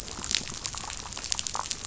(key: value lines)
label: biophony, damselfish
recorder: SoundTrap 500